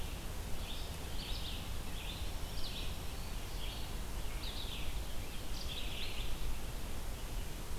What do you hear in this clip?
Red-eyed Vireo, Black-throated Green Warbler